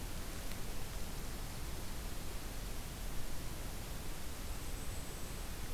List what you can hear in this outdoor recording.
Golden-crowned Kinglet